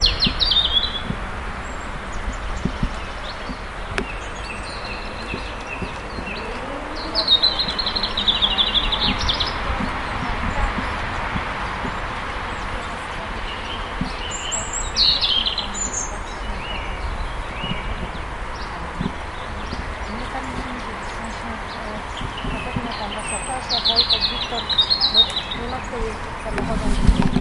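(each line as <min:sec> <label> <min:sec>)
0:00.1 A blackbird is singing. 0:01.6
0:07.2 A blackbird is singing. 0:11.1
0:14.6 A blackbird is singing. 0:15.9
0:18.3 A woman is speaking unclearly. 0:23.4
0:23.7 A blackbird is singing. 0:26.0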